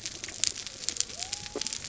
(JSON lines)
{"label": "biophony", "recorder": "SoundTrap 300"}